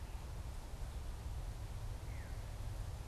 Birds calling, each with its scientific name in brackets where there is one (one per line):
Veery (Catharus fuscescens)